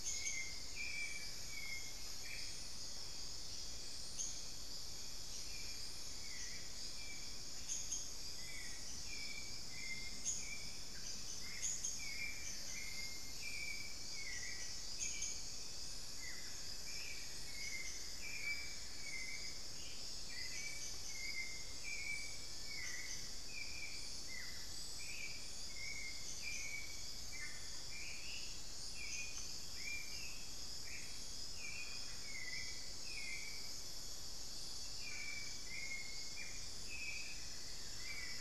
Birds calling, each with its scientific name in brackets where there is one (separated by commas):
Long-billed Woodcreeper (Nasica longirostris), Buff-throated Woodcreeper (Xiphorhynchus guttatus), unidentified bird, Black-faced Antthrush (Formicarius analis), Cinnamon-throated Woodcreeper (Dendrexetastes rufigula), Hauxwell's Thrush (Turdus hauxwelli), Amazonian Barred-Woodcreeper (Dendrocolaptes certhia)